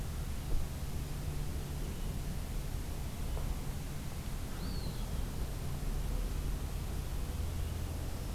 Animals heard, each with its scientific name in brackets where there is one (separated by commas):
Eastern Wood-Pewee (Contopus virens)